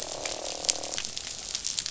{"label": "biophony, croak", "recorder": "SoundTrap 500"}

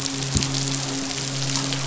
{"label": "biophony, midshipman", "recorder": "SoundTrap 500"}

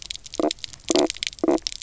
{"label": "biophony, knock croak", "recorder": "SoundTrap 300"}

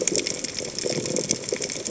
{"label": "biophony", "recorder": "HydroMoth"}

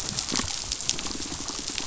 {"label": "biophony", "recorder": "SoundTrap 500"}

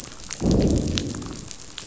{"label": "biophony, growl", "recorder": "SoundTrap 500"}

